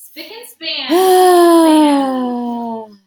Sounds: Sigh